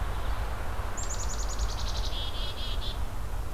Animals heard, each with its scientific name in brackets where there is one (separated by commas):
Red-eyed Vireo (Vireo olivaceus), Black-capped Chickadee (Poecile atricapillus)